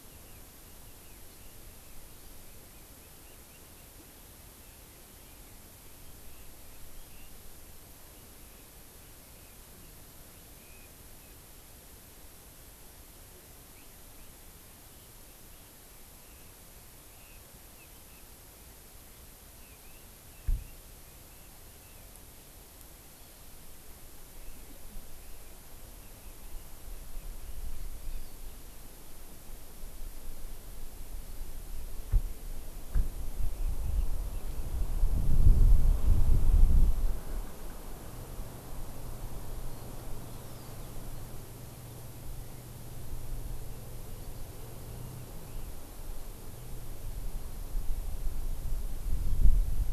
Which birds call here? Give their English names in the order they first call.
Red-billed Leiothrix, Hawaii Amakihi